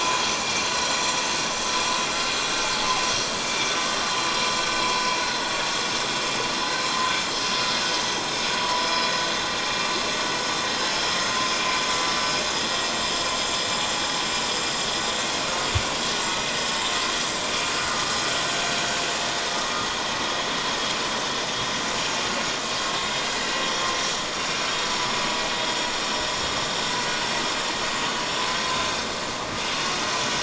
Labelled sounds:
0.4	0.6	vessel noise, 2.3 to 2.4 kHz
3.4	3.7	vessel noise, 2.2 to 2.4 kHz
8.6	8.9	vessel noise, 0.94 to 1.0 kHz
11.7	12.0	vessel noise, 5.8 to 6.0 kHz

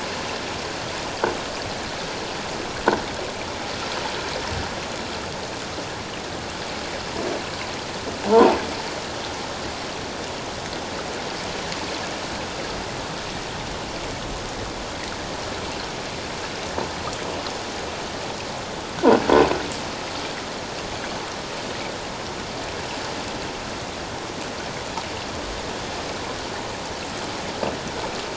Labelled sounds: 8.3	8.6	croaking sound likely from a nearby submerged object, 0.78 to 1.2 kHz

